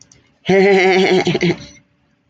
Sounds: Laughter